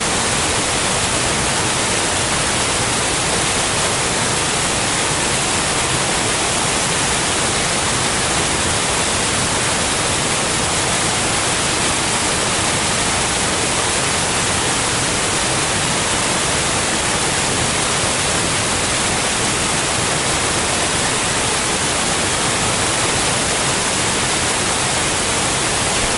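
0.0s A loud, steady waterfall. 26.2s

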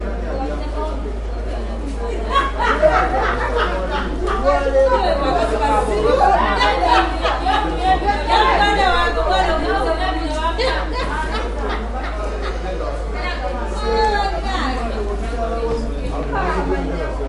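0.0s People talking in the background. 17.3s
2.3s A person laughs loudly in the background. 4.6s
6.5s A person laughs loudly in the background. 7.9s
10.5s A person laughs loudly in the background, gradually decreasing in volume. 13.0s

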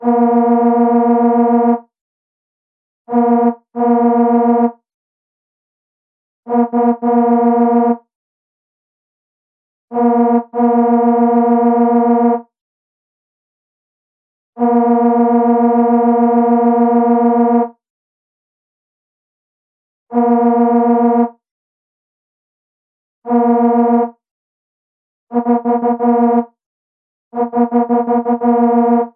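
0.0s A vehicle horn sounds. 1.8s
3.1s A vehicle horn sounds twice. 4.8s
6.4s A vehicle horn is honked multiple times. 8.0s
9.9s A vehicle horn is honked multiple times. 12.5s
14.6s A vehicle horn sounds continuously for a long time. 17.8s
20.1s A vehicle horn is honking. 21.3s
23.3s A vehicle horn is honking. 24.1s
25.3s A vehicle horn is honked multiple times in short sequences. 26.5s
27.3s A vehicle horn is honked multiple times in short sequences. 29.2s

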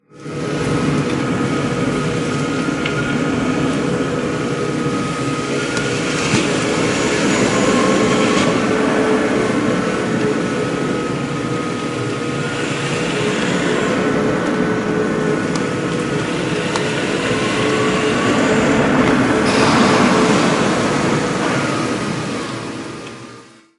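0.0s A loud electronic engine noise. 23.8s

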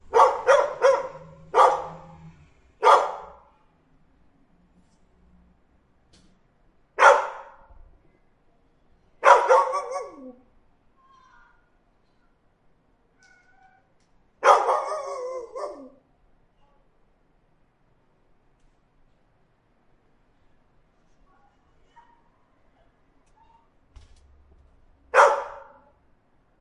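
0.0s A dog barks loudly with pauses nearby. 3.5s
6.8s A dog barks loudly in a rapid manner. 7.7s
8.9s A dog barks repeatedly. 10.5s
14.3s A dog barks repeatedly. 16.0s
24.9s A dog barks loudly in a rapid manner. 25.7s

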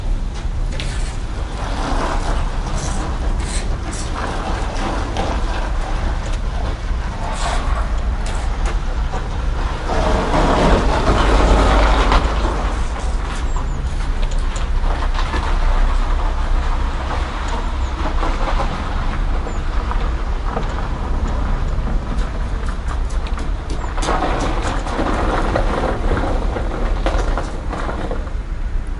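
1.3s Tires crunching through snow. 28.3s

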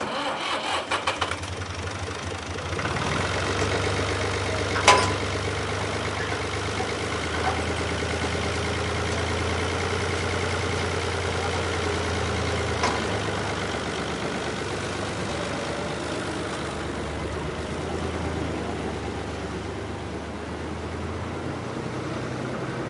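0.0s A car starter motor whines. 1.6s
1.6s The truck idles at slightly higher RPMs. 5.2s
4.7s Tapping on a thin metal object. 5.3s
5.3s A diesel vehicle is driving away into the distance. 22.9s

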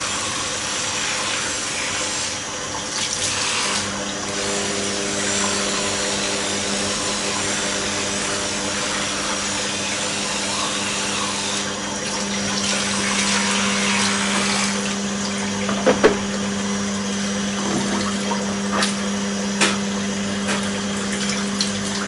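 0.0s A loud vibrating sound of an electric toothbrush. 22.1s
2.9s A muffled gulp of water fading. 3.7s
12.2s A muffled sound of running water. 15.2s
15.8s Thumping sounds fade away in the room. 16.2s
17.8s Muffled sounds of mouthwash and water indoors. 19.5s
19.6s A muffled spitting sound. 20.6s
21.2s A muffled sound of running water. 22.1s

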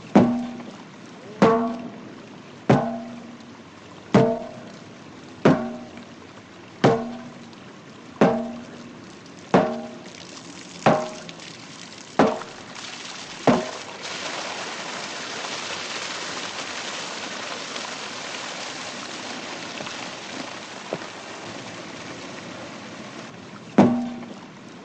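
0.0s Gentle, continuous flowing of nearby water. 10.2s
0.1s Metal barrel being struck forcefully, producing a bright metallic clang with slight reverb. 0.8s
1.2s A person calling out in the distance. 2.3s
1.4s A metal barrel is hit forcefully, producing a bright metallic clang with slight reverb. 2.0s
2.6s Metal barrel being struck forcefully, producing a bright metallic clang with slight reverb. 3.2s
4.1s Metal barrel being struck forcefully, producing a bright metallic clang with slight reverb. 4.7s
5.4s Metal barrel being struck forcefully, producing a bright metallic clang with slight reverb. 6.0s
6.8s Metal barrel being struck forcefully, producing a bright metallic clang with slight reverb. 7.4s
8.1s Metal barrel being struck forcefully, producing a bright metallic clang with slight reverb. 8.8s
9.5s Metal barrel being struck forcefully, producing a bright metallic clang with slight reverb. 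10.1s
10.2s Continuous flowing of nearby water, starting gently and increasing in intensity over time. 14.1s
10.8s Metal barrel being struck forcefully, producing a bright metallic clang with slight reverb. 11.4s
12.1s Metal barrel being struck forcefully, producing a bright metallic clang with slight reverb. 12.8s
13.4s Metal barrel being struck forcefully, producing a bright metallic clang with slight reverb. 14.0s
14.1s Continuous rapid rushing of nearby water fading over time. 24.8s
23.7s Metal barrel being struck forcefully, producing a bright metallic clang with slight reverb. 24.4s

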